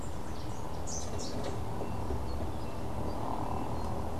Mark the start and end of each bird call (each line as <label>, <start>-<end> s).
Rufous-capped Warbler (Basileuterus rufifrons), 0.6-1.7 s
Melodious Warbler (Hippolais polyglotta), 1.1-4.2 s